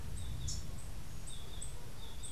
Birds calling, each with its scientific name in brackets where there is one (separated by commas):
unidentified bird, Yellow-throated Euphonia (Euphonia hirundinacea)